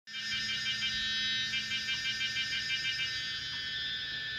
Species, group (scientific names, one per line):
Pomponia yayeyamana
Cicadidae